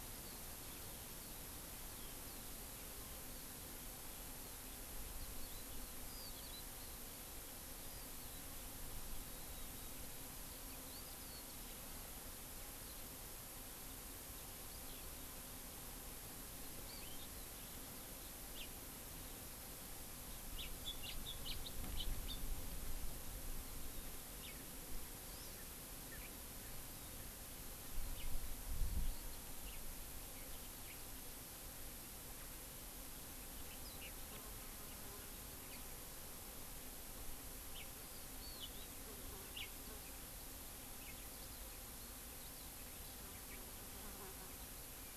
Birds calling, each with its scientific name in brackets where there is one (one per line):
House Finch (Haemorhous mexicanus)